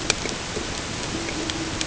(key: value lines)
label: ambient
recorder: HydroMoth